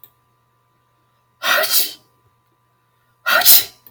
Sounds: Sneeze